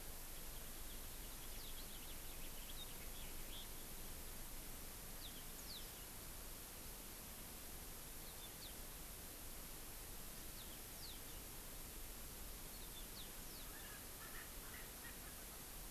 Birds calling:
Yellow-fronted Canary (Crithagra mozambica)
Erckel's Francolin (Pternistis erckelii)
House Finch (Haemorhous mexicanus)

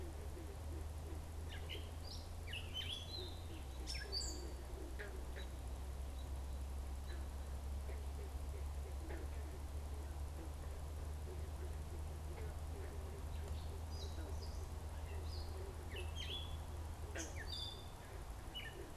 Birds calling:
American Robin (Turdus migratorius)
Gray Catbird (Dumetella carolinensis)

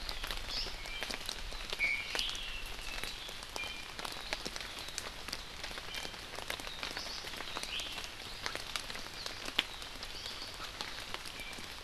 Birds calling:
Iiwi (Drepanis coccinea)

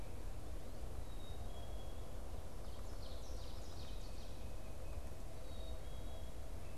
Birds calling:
Black-capped Chickadee (Poecile atricapillus)
Ovenbird (Seiurus aurocapilla)

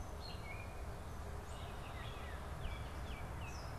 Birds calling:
Red-winged Blackbird (Agelaius phoeniceus)
Gray Catbird (Dumetella carolinensis)
Baltimore Oriole (Icterus galbula)

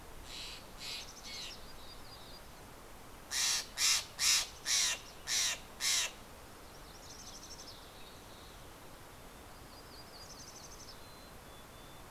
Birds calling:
Dark-eyed Junco (Junco hyemalis)
Mountain Chickadee (Poecile gambeli)
MacGillivray's Warbler (Geothlypis tolmiei)
Steller's Jay (Cyanocitta stelleri)

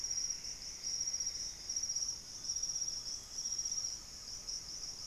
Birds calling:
unidentified bird
Plumbeous Antbird (Myrmelastes hyperythrus)
Great Antshrike (Taraba major)
Chestnut-winged Foliage-gleaner (Dendroma erythroptera)

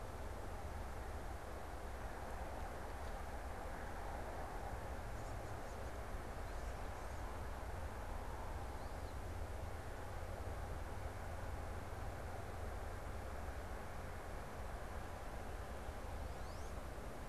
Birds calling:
Wood Duck (Aix sponsa)

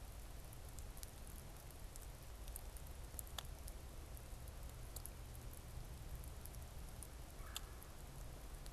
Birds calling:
Red-bellied Woodpecker (Melanerpes carolinus)

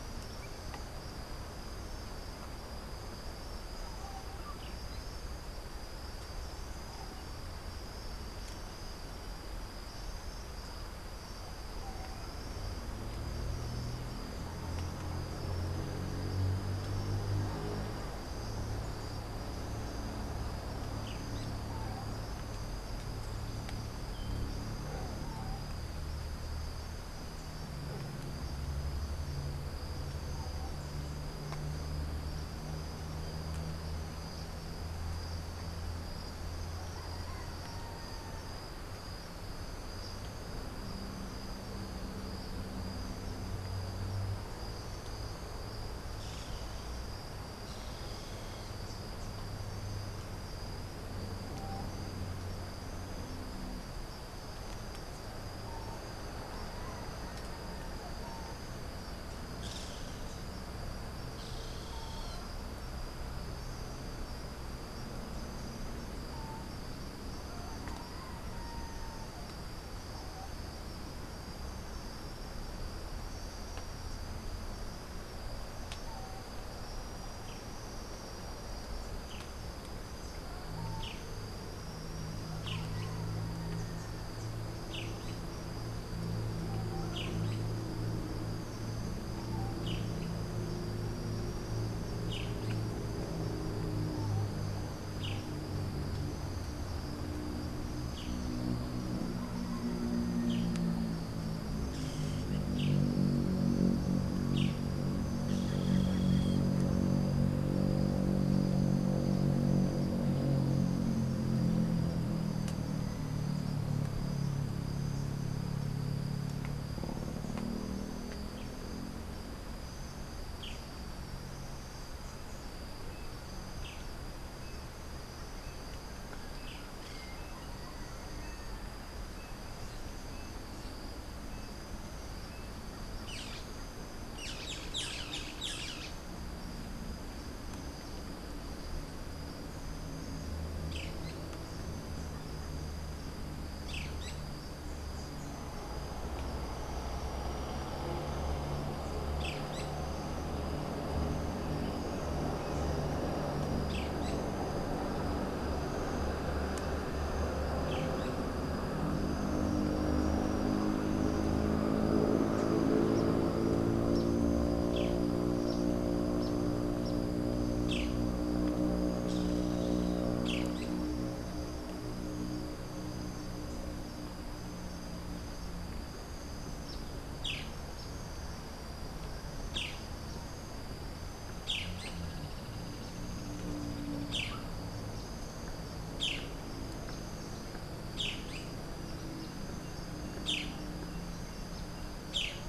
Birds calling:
Boat-billed Flycatcher (Megarynchus pitangua)

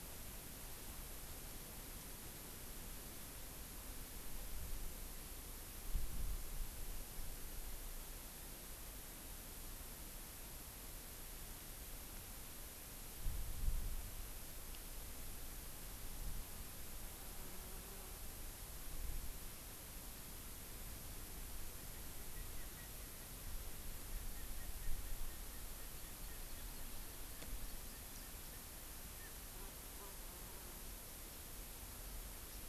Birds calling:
Hawaii Amakihi (Chlorodrepanis virens)
Erckel's Francolin (Pternistis erckelii)

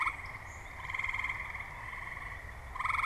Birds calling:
Swamp Sparrow (Melospiza georgiana)

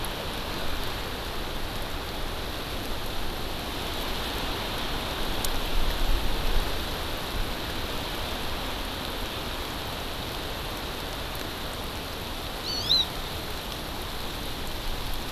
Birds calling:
Hawaii Amakihi (Chlorodrepanis virens)

